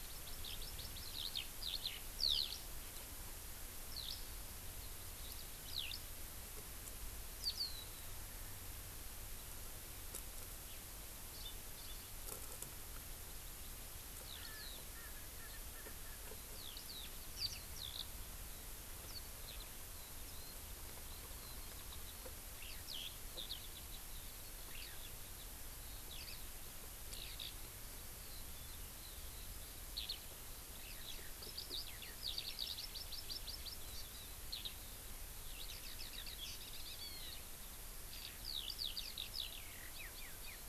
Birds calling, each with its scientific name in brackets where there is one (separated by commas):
Eurasian Skylark (Alauda arvensis), House Finch (Haemorhous mexicanus), Erckel's Francolin (Pternistis erckelii), Hawaii Amakihi (Chlorodrepanis virens), Warbling White-eye (Zosterops japonicus)